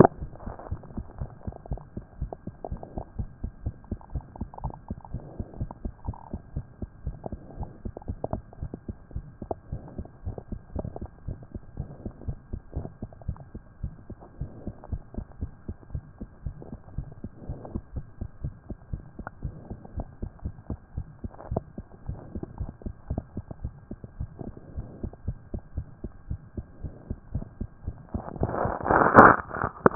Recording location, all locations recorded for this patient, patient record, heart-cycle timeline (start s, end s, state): mitral valve (MV)
pulmonary valve (PV)+tricuspid valve (TV)+mitral valve (MV)
#Age: Child
#Sex: Female
#Height: 95.0 cm
#Weight: 15.4 kg
#Pregnancy status: False
#Murmur: Present
#Murmur locations: mitral valve (MV)+pulmonary valve (PV)
#Most audible location: mitral valve (MV)
#Systolic murmur timing: Early-systolic
#Systolic murmur shape: Plateau
#Systolic murmur grading: I/VI
#Systolic murmur pitch: Low
#Systolic murmur quality: Blowing
#Diastolic murmur timing: nan
#Diastolic murmur shape: nan
#Diastolic murmur grading: nan
#Diastolic murmur pitch: nan
#Diastolic murmur quality: nan
#Outcome: Normal
#Campaign: 2014 screening campaign
0.00	0.62	unannotated
0.62	0.70	diastole
0.70	0.82	S1
0.82	0.96	systole
0.96	1.02	S2
1.02	1.18	diastole
1.18	1.30	S1
1.30	1.46	systole
1.46	1.52	S2
1.52	1.70	diastole
1.70	1.82	S1
1.82	1.96	systole
1.96	2.04	S2
2.04	2.20	diastole
2.20	2.32	S1
2.32	2.46	systole
2.46	2.54	S2
2.54	2.70	diastole
2.70	2.80	S1
2.80	2.96	systole
2.96	3.04	S2
3.04	3.18	diastole
3.18	3.28	S1
3.28	3.42	systole
3.42	3.52	S2
3.52	3.64	diastole
3.64	3.74	S1
3.74	3.90	systole
3.90	3.98	S2
3.98	4.14	diastole
4.14	4.24	S1
4.24	4.38	systole
4.38	4.48	S2
4.48	4.62	diastole
4.62	4.74	S1
4.74	4.88	systole
4.88	4.98	S2
4.98	5.12	diastole
5.12	5.24	S1
5.24	5.38	systole
5.38	5.46	S2
5.46	5.58	diastole
5.58	5.70	S1
5.70	5.82	systole
5.82	5.92	S2
5.92	6.06	diastole
6.06	6.16	S1
6.16	6.32	systole
6.32	6.40	S2
6.40	6.54	diastole
6.54	6.66	S1
6.66	6.80	systole
6.80	6.88	S2
6.88	7.04	diastole
7.04	7.16	S1
7.16	7.30	systole
7.30	7.40	S2
7.40	7.58	diastole
7.58	7.70	S1
7.70	7.84	systole
7.84	7.92	S2
7.92	8.08	diastole
8.08	8.18	S1
8.18	8.32	systole
8.32	8.42	S2
8.42	8.60	diastole
8.60	8.72	S1
8.72	8.88	systole
8.88	8.96	S2
8.96	9.14	diastole
9.14	9.26	S1
9.26	9.42	systole
9.42	9.50	S2
9.50	9.70	diastole
9.70	9.82	S1
9.82	9.96	systole
9.96	10.06	S2
10.06	10.24	diastole
10.24	10.36	S1
10.36	10.50	systole
10.50	10.60	S2
10.60	10.76	diastole
10.76	10.88	S1
10.88	11.00	systole
11.00	11.08	S2
11.08	11.26	diastole
11.26	11.38	S1
11.38	11.52	systole
11.52	11.62	S2
11.62	11.78	diastole
11.78	11.88	S1
11.88	12.04	systole
12.04	12.12	S2
12.12	12.26	diastole
12.26	12.38	S1
12.38	12.52	systole
12.52	12.60	S2
12.60	12.76	diastole
12.76	12.88	S1
12.88	13.02	systole
13.02	13.10	S2
13.10	13.26	diastole
13.26	13.38	S1
13.38	13.54	systole
13.54	13.62	S2
13.62	13.82	diastole
13.82	13.94	S1
13.94	14.08	systole
14.08	14.18	S2
14.18	14.40	diastole
14.40	14.50	S1
14.50	14.66	systole
14.66	14.74	S2
14.74	14.90	diastole
14.90	15.02	S1
15.02	15.16	systole
15.16	15.26	S2
15.26	15.40	diastole
15.40	15.52	S1
15.52	15.68	systole
15.68	15.76	S2
15.76	15.92	diastole
15.92	16.04	S1
16.04	16.20	systole
16.20	16.28	S2
16.28	16.44	diastole
16.44	16.56	S1
16.56	16.70	systole
16.70	16.78	S2
16.78	16.96	diastole
16.96	17.08	S1
17.08	17.22	systole
17.22	17.30	S2
17.30	17.48	diastole
17.48	17.60	S1
17.60	17.72	systole
17.72	17.82	S2
17.82	17.94	diastole
17.94	18.06	S1
18.06	18.20	systole
18.20	18.28	S2
18.28	18.42	diastole
18.42	18.54	S1
18.54	18.68	systole
18.68	18.76	S2
18.76	18.92	diastole
18.92	19.02	S1
19.02	19.18	systole
19.18	19.26	S2
19.26	19.42	diastole
19.42	19.54	S1
19.54	19.70	systole
19.70	19.78	S2
19.78	19.96	diastole
19.96	20.08	S1
20.08	20.22	systole
20.22	20.30	S2
20.30	20.44	diastole
20.44	20.54	S1
20.54	20.68	systole
20.68	20.78	S2
20.78	20.96	diastole
20.96	21.06	S1
21.06	21.22	systole
21.22	21.32	S2
21.32	21.50	diastole
21.50	29.95	unannotated